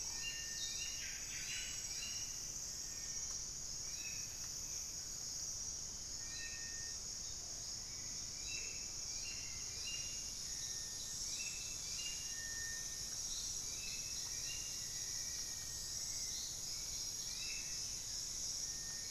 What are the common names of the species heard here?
Amazonian Motmot, Hauxwell's Thrush, Buff-breasted Wren, Black-faced Antthrush